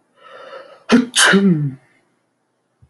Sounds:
Sneeze